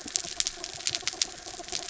{"label": "anthrophony, mechanical", "recorder": "SoundTrap 300"}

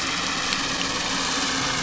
{"label": "anthrophony, boat engine", "recorder": "SoundTrap 500"}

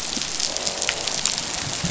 {"label": "biophony, croak", "recorder": "SoundTrap 500"}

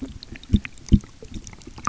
{"label": "geophony, waves", "recorder": "SoundTrap 300"}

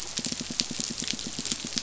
{"label": "biophony, pulse", "recorder": "SoundTrap 500"}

